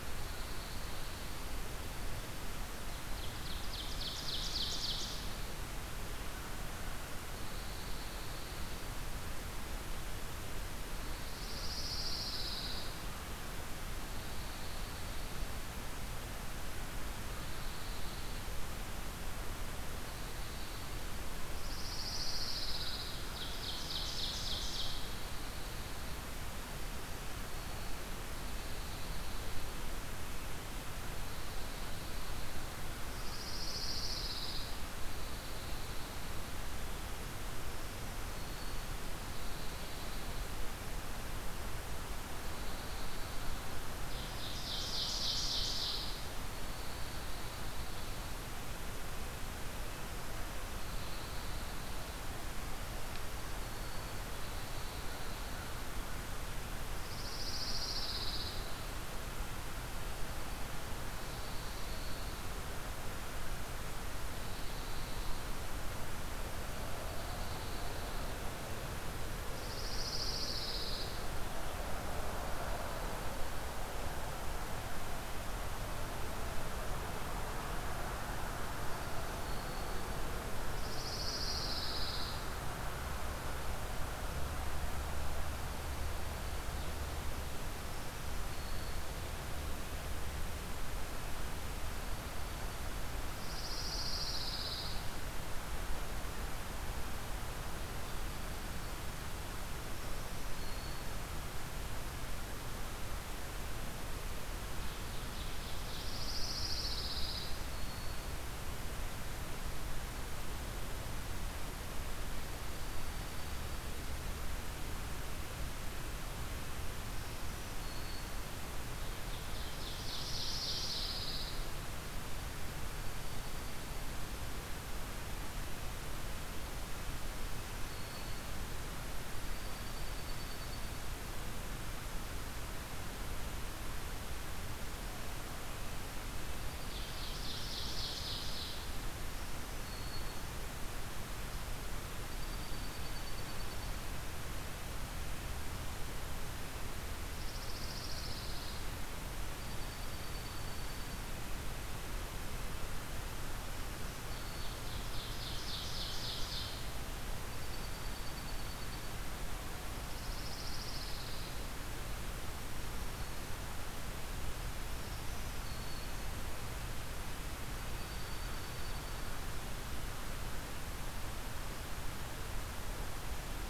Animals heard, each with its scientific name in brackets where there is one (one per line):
Ovenbird (Seiurus aurocapilla)
Black-throated Green Warbler (Setophaga virens)
Dark-eyed Junco (Junco hyemalis)
Pine Warbler (Setophaga pinus)
American Crow (Corvus brachyrhynchos)